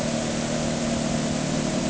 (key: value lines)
label: anthrophony, boat engine
recorder: HydroMoth